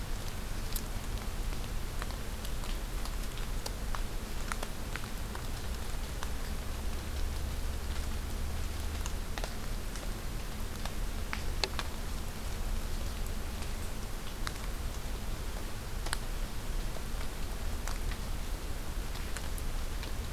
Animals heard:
forest ambience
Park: Acadia National Park